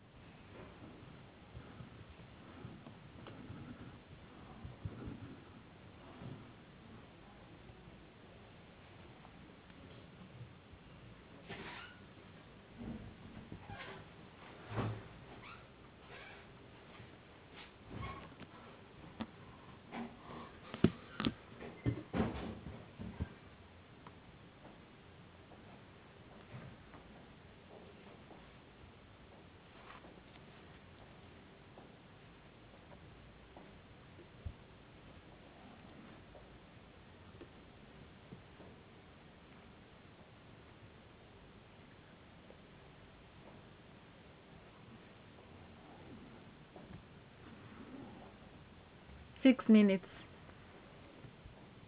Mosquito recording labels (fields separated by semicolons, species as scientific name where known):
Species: no mosquito; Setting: insect culture